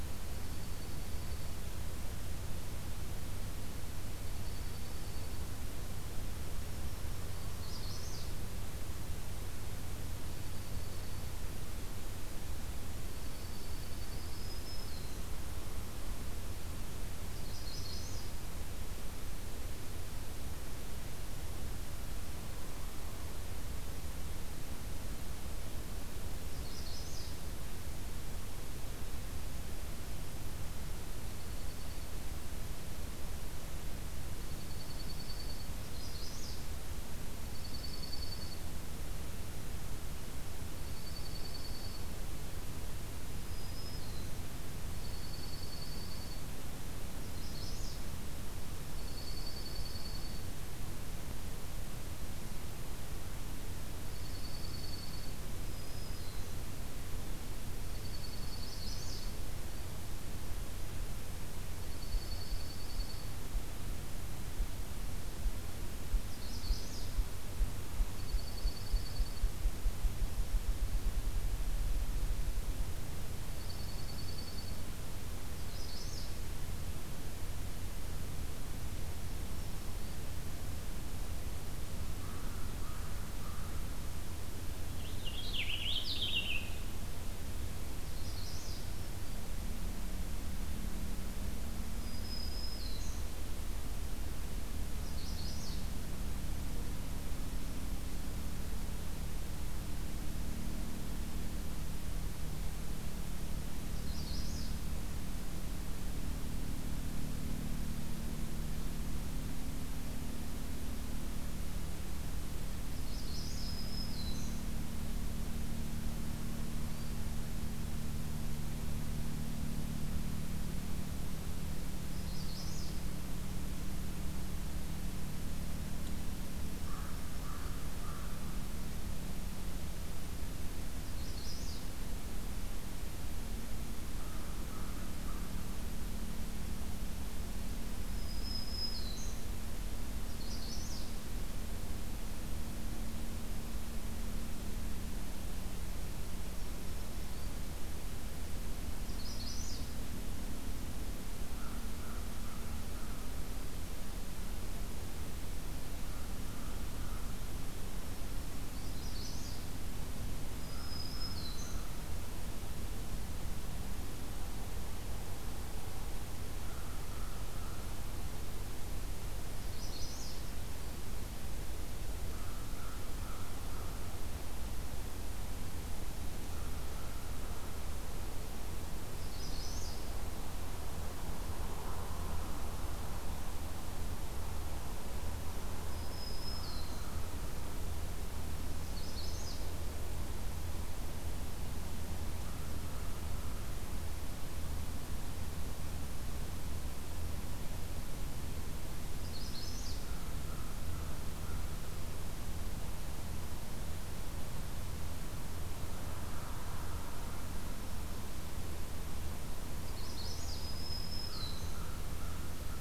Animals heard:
Purple Finch (Haemorhous purpureus), Black-throated Green Warbler (Setophaga virens), Ruffed Grouse (Bonasa umbellus), Magnolia Warbler (Setophaga magnolia), Dark-eyed Junco (Junco hyemalis), American Crow (Corvus brachyrhynchos)

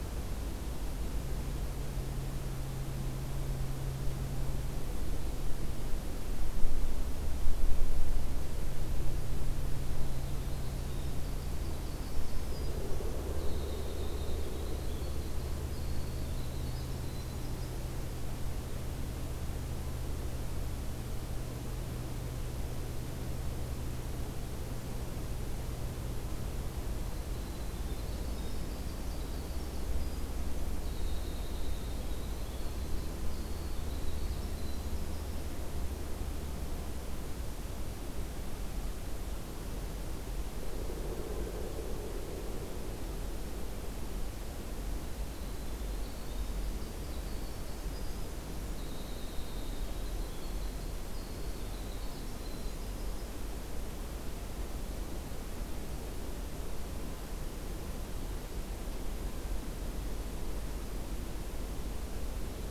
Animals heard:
Winter Wren (Troglodytes hiemalis)

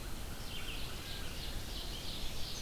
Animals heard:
Red-eyed Vireo (Vireo olivaceus), Ovenbird (Seiurus aurocapilla)

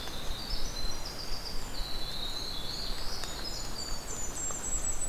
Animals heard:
Golden-crowned Kinglet (Regulus satrapa), Black-throated Blue Warbler (Setophaga caerulescens), Winter Wren (Troglodytes hiemalis)

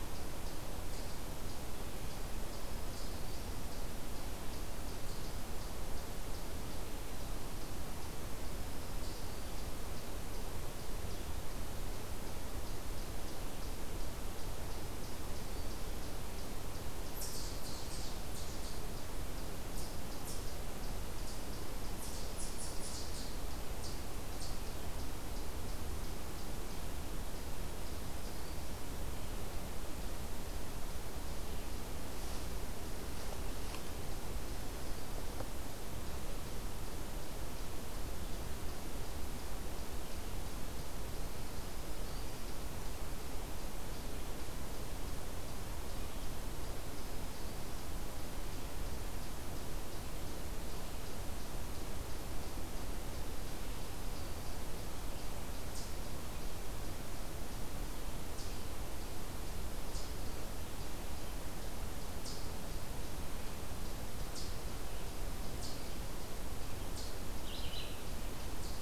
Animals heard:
Black-throated Green Warbler (Setophaga virens), Eastern Chipmunk (Tamias striatus), Red-eyed Vireo (Vireo olivaceus)

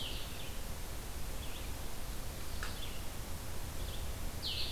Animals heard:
Red-eyed Vireo (Vireo olivaceus), Blue-headed Vireo (Vireo solitarius)

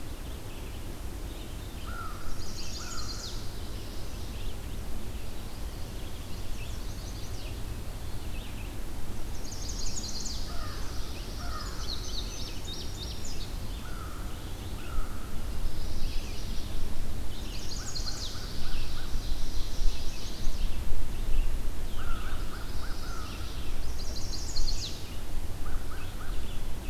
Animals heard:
Red-eyed Vireo (Vireo olivaceus), Chestnut-sided Warbler (Setophaga pensylvanica), Ovenbird (Seiurus aurocapilla), Indigo Bunting (Passerina cyanea), American Crow (Corvus brachyrhynchos), Pine Warbler (Setophaga pinus)

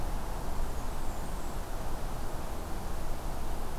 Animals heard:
Blackburnian Warbler (Setophaga fusca)

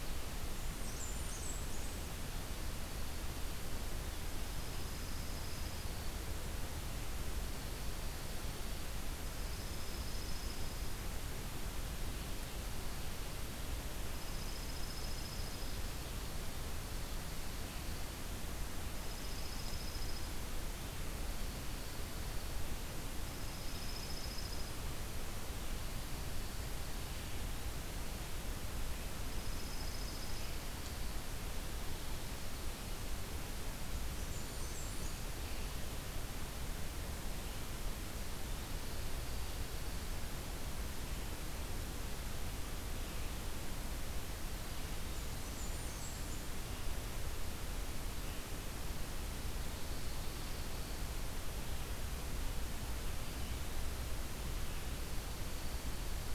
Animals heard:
Blackburnian Warbler (Setophaga fusca), Dark-eyed Junco (Junco hyemalis)

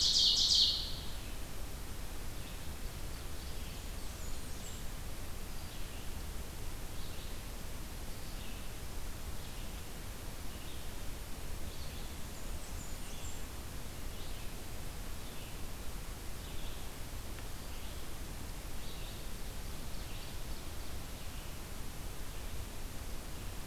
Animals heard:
Red-eyed Vireo (Vireo olivaceus), Blackburnian Warbler (Setophaga fusca), Ovenbird (Seiurus aurocapilla)

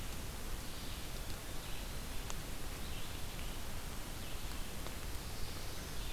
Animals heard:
Red-eyed Vireo (Vireo olivaceus)

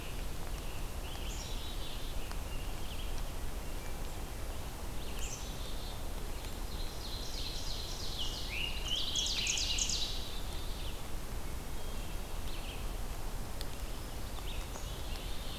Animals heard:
Red-eyed Vireo (Vireo olivaceus), Ovenbird (Seiurus aurocapilla), Scarlet Tanager (Piranga olivacea), Hermit Thrush (Catharus guttatus), Black-capped Chickadee (Poecile atricapillus)

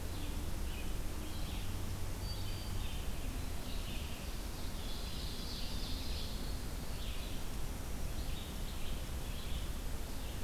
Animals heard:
Winter Wren (Troglodytes hiemalis), Red-eyed Vireo (Vireo olivaceus), Black-throated Green Warbler (Setophaga virens), Ovenbird (Seiurus aurocapilla)

